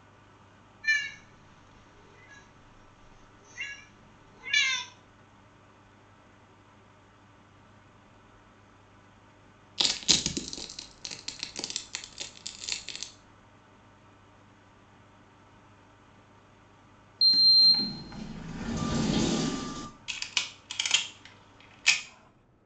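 At 0.82 seconds, a cat can be heard. After that, at 9.77 seconds, crushing is heard. Next, at 17.18 seconds, the sound of a sliding door is audible. Finally, at 20.07 seconds, you can hear the sound of a camera. A faint, steady noise runs about 30 dB below the sounds.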